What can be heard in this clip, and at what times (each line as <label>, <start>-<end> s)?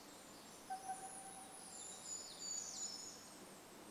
unidentified bird chip note, 0-2 s
unidentified sound, 0-2 s
Brown Creeper call, 0-4 s
warbler song, 2-4 s